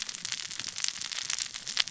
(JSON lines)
{"label": "biophony, cascading saw", "recorder": "SoundTrap 600 or HydroMoth"}